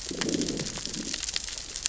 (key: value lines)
label: biophony, growl
recorder: SoundTrap 600 or HydroMoth